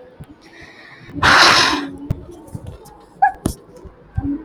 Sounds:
Sigh